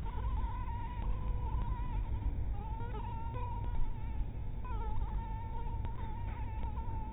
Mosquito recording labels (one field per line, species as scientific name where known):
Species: mosquito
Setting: cup